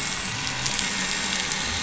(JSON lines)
{"label": "anthrophony, boat engine", "recorder": "SoundTrap 500"}